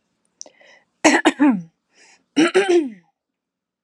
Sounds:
Throat clearing